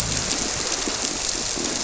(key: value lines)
label: biophony
recorder: SoundTrap 300